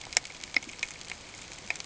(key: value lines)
label: ambient
recorder: HydroMoth